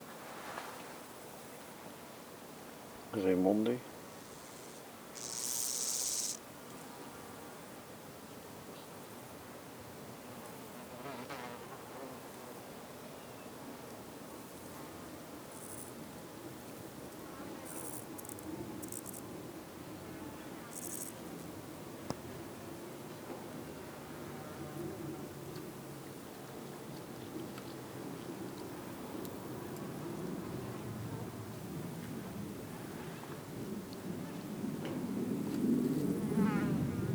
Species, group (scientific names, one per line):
Omocestus raymondi
Orthoptera